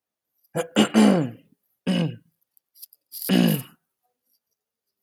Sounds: Throat clearing